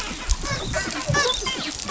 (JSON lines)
{"label": "biophony, dolphin", "recorder": "SoundTrap 500"}